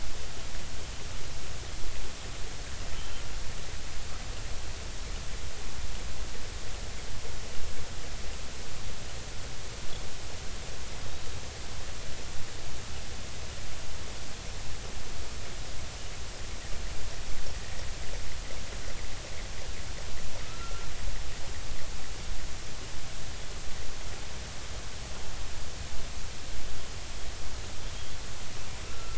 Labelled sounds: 2.9	3.2	killer whale, offshore, 2.9 to 3.3 kHz
20.4	20.9	killer whale, offshore, 1.2 to 1.4 kHz
28.8	29.1	killer whale, offshore, 1.3 to 1.4 kHz

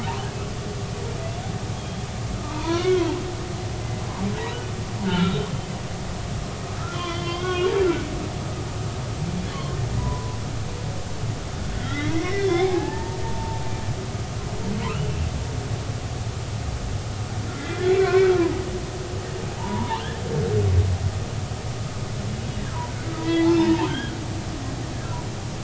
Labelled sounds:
1.8	3.2	humpback whale, 0.83 to 3.4 kHz
5.0	5.4	humpback whale, 1.3 to 3.9 kHz
6.9	8.0	humpback whale, 0.99 to 3.7 kHz
9.5	10.4	humpback whale, 0.93 to 4.4 kHz
11.8	13.6	humpback whale, 0.80 to 3.6 kHz
17.6	18.3	humpback whale, 1.3 to 2.1 kHz
19.5	20.0	humpback whale, 0.80 to 1.2 kHz
23.2	24.1	humpback whale, 0.83 to 3.4 kHz

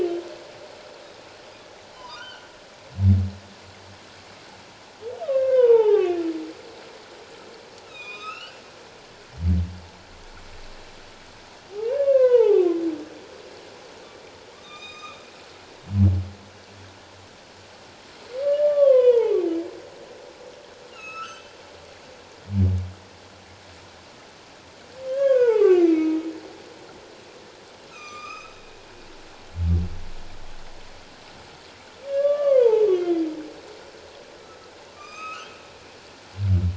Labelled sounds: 1.9	2.5	humpback whale, 0.91 to 3.2 kHz
5.2	6.2	humpback whale, 0.78 to 3.1 kHz
7.8	8.6	humpback whale, 1.1 to 5.3 kHz
11.7	12.8	humpback whale, 0.78 to 3.8 kHz
14.5	15.2	humpback whale, 1.0 to 7.5 kHz
18.7	19.4	humpback whale, 0.78 to 3.5 kHz
20.9	21.6	humpback whale, 1.2 to 6.4 kHz
25.1	26.3	humpback whale, 0.78 to 3.4 kHz
27.9	28.5	humpback whale, 1.1 to 7.4 kHz
32.1	33.2	humpback whale, 0.81 to 3.4 kHz
34.9	35.5	humpback whale, 1.1 to 7.8 kHz

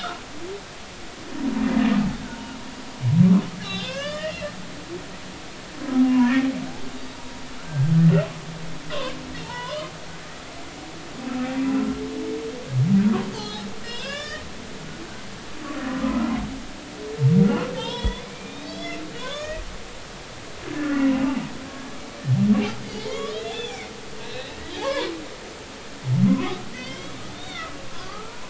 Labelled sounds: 0.0	0.2	humpback whale, 1.2 to 1.5 kHz
3.6	5.0	humpback whale, 0.99 to 5.2 kHz
6.1	6.5	humpback whale, 0.90 to 1.9 kHz
7.7	7.9	humpback whale, 1.5 to 1.7 kHz
9.4	9.9	humpback whale, 0.83 to 3.6 kHz
11.7	11.9	humpback whale, 1.3 to 1.5 kHz
13.3	14.5	humpback whale, 1.1 to 5.5 kHz
16.0	16.3	humpback whale, 1.2 to 1.4 kHz
17.5	19.6	humpback whale, 0.83 to 6.9 kHz
20.7	21.0	humpback whale, 1.6 to 1.8 kHz
23.0	23.7	humpback whale, 0.99 to 3.6 kHz
24.2	25.1	humpback whale, 0.80 to 4.2 kHz
26.3	28.3	humpback whale, 0.96 to 6.1 kHz

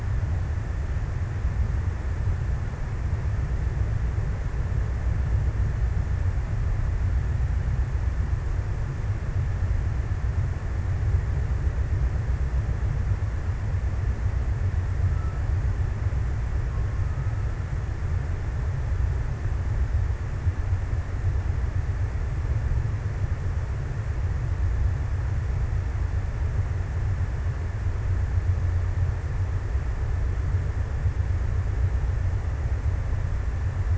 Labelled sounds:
14.7	16.0	killer whale, Bigg's (transient), 0.94 to 1.5 kHz
16.4	18.4	killer whale, Bigg's (transient), 0.78 to 1.5 kHz

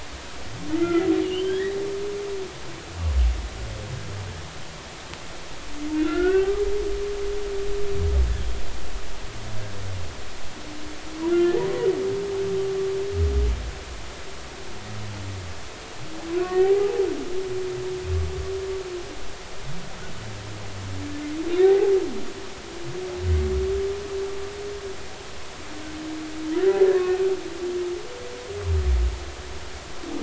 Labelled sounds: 0.7	1.8	humpback whale, 1.3 to 3.4 kHz
5.9	6.5	humpback whale, 1.3 to 2.9 kHz
11.3	11.6	humpback whale, 1.3 to 1.4 kHz
16.4	17.1	humpback whale, 0.80 to 2.0 kHz
21.6	21.9	humpback whale, 0.80 to 2.0 kHz

